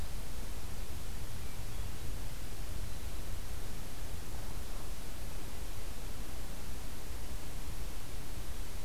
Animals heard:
forest ambience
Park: Acadia National Park